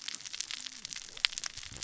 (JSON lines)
{"label": "biophony, cascading saw", "recorder": "SoundTrap 600 or HydroMoth"}